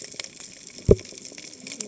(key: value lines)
label: biophony, cascading saw
recorder: HydroMoth